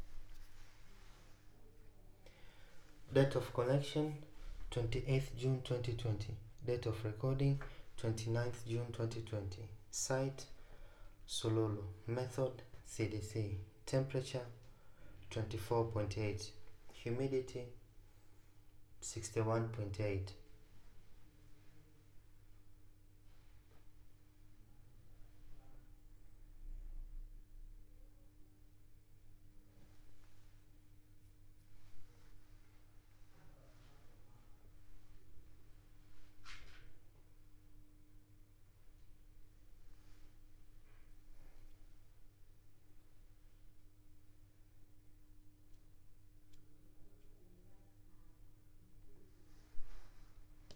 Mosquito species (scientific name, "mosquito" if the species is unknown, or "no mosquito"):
no mosquito